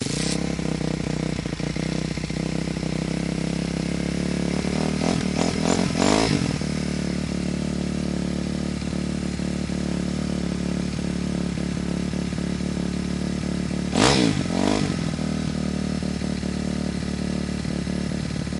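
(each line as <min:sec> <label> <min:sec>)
0:00.0 A bike is driving nearby. 0:05.0
0:05.0 A bike engine revs repeatedly. 0:06.6
0:06.7 A bike is riding slowly and repeatedly. 0:13.9
0:13.9 A bike engine revs twice. 0:14.9
0:14.9 A bike rides slowly and repeatedly. 0:18.6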